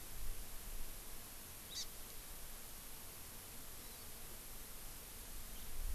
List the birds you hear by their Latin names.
Chlorodrepanis virens, Haemorhous mexicanus